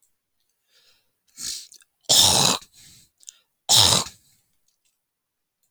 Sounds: Throat clearing